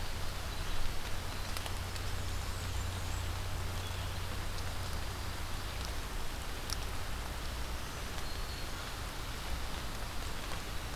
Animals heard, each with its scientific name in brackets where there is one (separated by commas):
Black-throated Green Warbler (Setophaga virens), Blackburnian Warbler (Setophaga fusca)